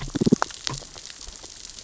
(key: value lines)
label: biophony, damselfish
recorder: SoundTrap 600 or HydroMoth